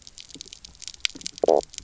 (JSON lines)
{"label": "biophony, knock croak", "recorder": "SoundTrap 300"}